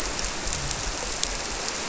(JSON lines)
{"label": "biophony", "recorder": "SoundTrap 300"}